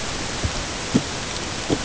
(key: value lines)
label: ambient
recorder: HydroMoth